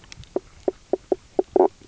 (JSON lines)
{"label": "biophony, knock croak", "recorder": "SoundTrap 300"}